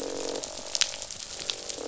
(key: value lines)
label: biophony, croak
recorder: SoundTrap 500